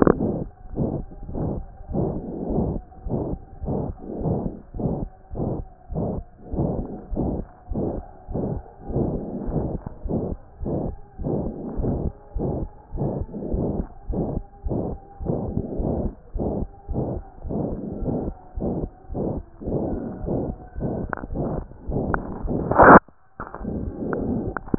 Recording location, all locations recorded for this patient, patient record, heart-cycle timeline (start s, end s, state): pulmonary valve (PV)
aortic valve (AV)+pulmonary valve (PV)+tricuspid valve (TV)+mitral valve (MV)
#Age: Child
#Sex: Male
#Height: 121.0 cm
#Weight: 23.0 kg
#Pregnancy status: False
#Murmur: Present
#Murmur locations: aortic valve (AV)+mitral valve (MV)+pulmonary valve (PV)+tricuspid valve (TV)
#Most audible location: tricuspid valve (TV)
#Systolic murmur timing: Holosystolic
#Systolic murmur shape: Diamond
#Systolic murmur grading: III/VI or higher
#Systolic murmur pitch: High
#Systolic murmur quality: Harsh
#Diastolic murmur timing: nan
#Diastolic murmur shape: nan
#Diastolic murmur grading: nan
#Diastolic murmur pitch: nan
#Diastolic murmur quality: nan
#Outcome: Abnormal
#Campaign: 2015 screening campaign
0.00	11.52	unannotated
11.52	11.75	diastole
11.75	11.87	S1
11.87	12.04	systole
12.04	12.14	S2
12.14	12.34	diastole
12.34	12.45	S1
12.45	12.59	systole
12.59	12.68	S2
12.68	12.91	diastole
12.91	13.03	S1
13.03	13.18	systole
13.18	13.27	S2
13.27	13.50	diastole
13.50	13.60	S1
13.60	13.75	systole
13.75	13.86	S2
13.86	14.08	diastole
14.08	14.17	S1
14.17	14.32	systole
14.32	14.44	S2
14.44	14.64	diastole
14.64	14.74	S1
14.74	14.88	systole
14.88	14.96	S2
14.96	15.21	diastole
15.21	15.29	S1
15.29	15.46	systole
15.46	15.54	S2
15.54	15.78	diastole
15.78	15.86	S1
15.86	16.03	systole
16.03	16.12	S2
16.12	16.34	diastole
16.34	16.44	S1
16.44	16.56	systole
16.56	16.68	S2
16.68	16.87	diastole
16.87	16.98	S1
16.98	17.14	systole
17.14	17.24	S2
17.24	17.43	diastole
17.43	17.56	S1
17.56	17.69	systole
17.69	17.80	S2
17.80	18.01	diastole
18.01	18.08	S1
18.08	18.26	systole
18.26	18.36	S2
18.36	18.55	diastole
18.55	18.65	S1
18.65	18.82	systole
18.82	18.90	S2
18.90	19.10	diastole
19.10	19.19	S1
19.19	19.36	systole
19.36	19.44	S2
19.44	19.66	diastole
19.66	19.76	S1
19.76	19.92	systole
19.92	20.01	S2
20.01	20.22	diastole
20.22	20.30	S1
20.30	20.48	systole
20.48	20.60	S2
20.60	20.77	diastole
20.77	20.87	S1
20.87	21.02	systole
21.02	21.12	S2
21.12	21.30	diastole
21.30	21.39	S1
21.39	21.54	systole
21.54	21.62	S2
21.62	21.88	diastole
21.88	21.97	S1
21.97	22.10	systole
22.10	22.20	S2
22.20	22.43	diastole
22.43	24.78	unannotated